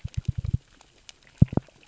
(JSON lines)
{"label": "biophony, knock", "recorder": "SoundTrap 600 or HydroMoth"}